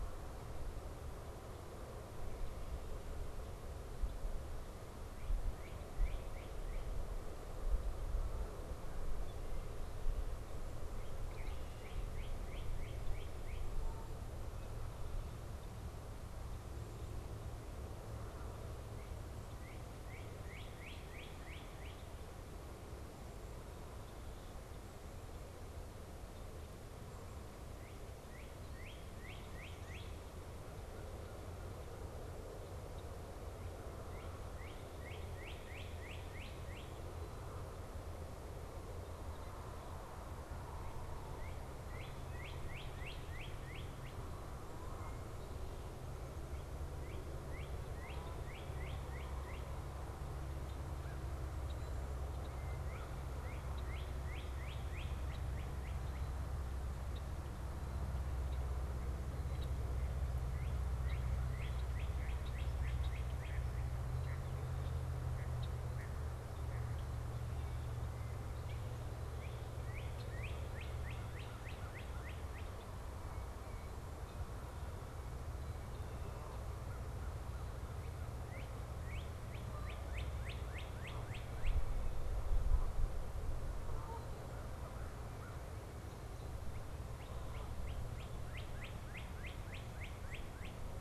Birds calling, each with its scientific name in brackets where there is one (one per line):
Canada Goose (Branta canadensis)
American Crow (Corvus brachyrhynchos)
Red-winged Blackbird (Agelaius phoeniceus)
Northern Cardinal (Cardinalis cardinalis)
Mallard (Anas platyrhynchos)